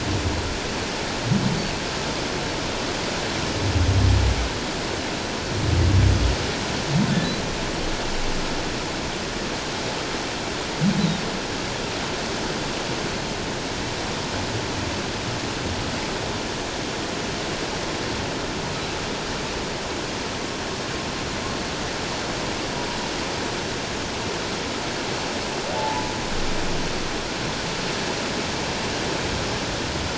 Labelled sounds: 25.8	26.0	humpback whale, 0.78 to 1.0 kHz

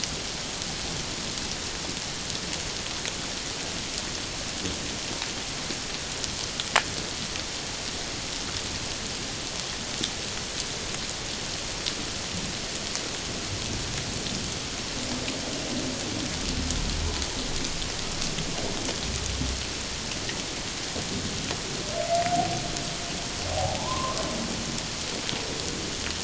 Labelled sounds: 23.5	24.2	humpback whale, 0.78 to 1.3 kHz

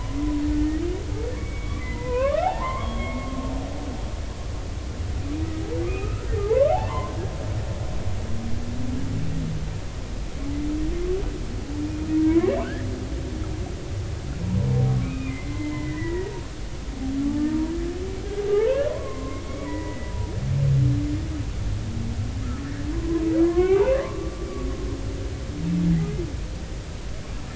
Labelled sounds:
0.6	3.5	humpback whale, 0.80 to 3.4 kHz
5.8	7.1	humpback whale, 0.80 to 2.7 kHz
12.2	12.9	humpback whale, 0.90 to 2.3 kHz
15.0	16.3	humpback whale, 0.90 to 2.6 kHz
18.5	20.3	humpback whale, 0.80 to 2.2 kHz
22.9	24.5	humpback whale, 0.96 to 2.8 kHz

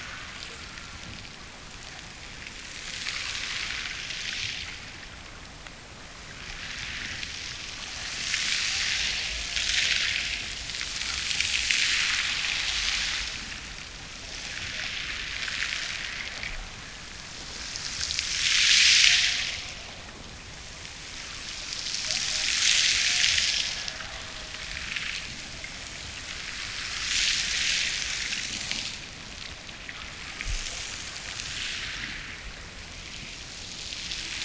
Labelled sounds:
22.0	25.0	killer whale, Bigg's (transient), Gulf of Alaska transient, 0.39 to 0.98 kHz

